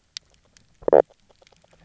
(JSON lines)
{"label": "biophony, knock croak", "recorder": "SoundTrap 300"}